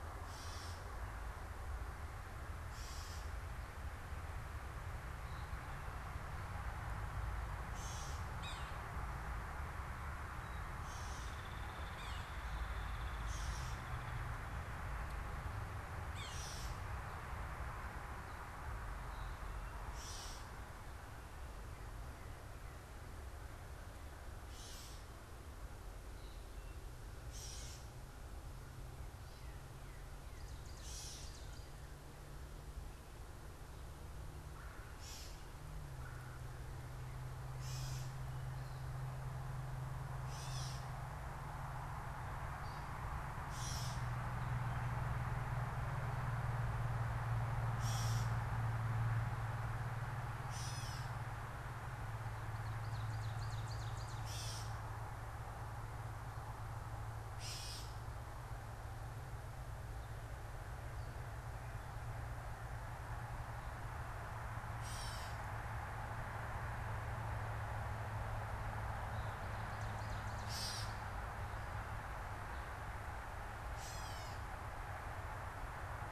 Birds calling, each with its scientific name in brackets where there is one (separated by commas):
Ovenbird (Seiurus aurocapilla), American Crow (Corvus brachyrhynchos), Gray Catbird (Dumetella carolinensis), Yellow-bellied Sapsucker (Sphyrapicus varius), Hairy Woodpecker (Dryobates villosus)